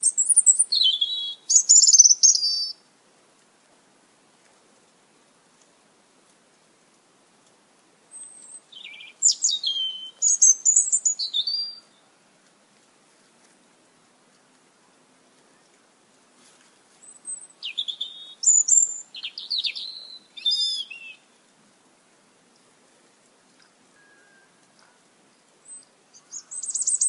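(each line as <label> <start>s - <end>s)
Birds chirping outdoors. 0.0s - 2.9s
Birds singing in a calm environment. 8.6s - 12.1s
Birds singing near a stream. 16.8s - 21.7s
Water flowing in an outdoor environment. 21.9s - 25.1s
Birds chirping outdoors. 26.1s - 27.1s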